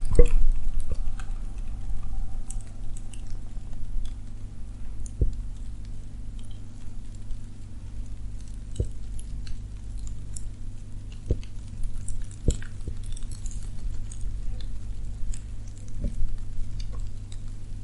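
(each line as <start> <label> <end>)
0.0 Fire crackles. 17.8
0.1 A hollow knocking sound. 0.3
5.2 A dull knock is heard. 5.4
8.7 A dull knock is heard. 8.9
11.3 A dull knocking sound. 11.5
12.4 A dull knocking sound. 12.6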